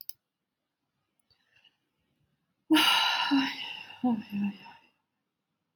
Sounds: Sigh